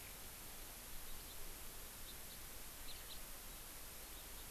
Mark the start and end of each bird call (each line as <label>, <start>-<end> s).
Eurasian Skylark (Alauda arvensis), 0.0-0.2 s
House Finch (Haemorhous mexicanus), 1.3-1.4 s
House Finch (Haemorhous mexicanus), 2.0-2.4 s
House Finch (Haemorhous mexicanus), 3.1-3.2 s